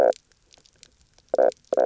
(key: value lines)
label: biophony, knock croak
recorder: SoundTrap 300